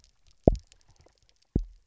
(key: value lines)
label: biophony, double pulse
recorder: SoundTrap 300